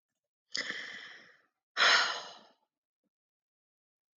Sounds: Sigh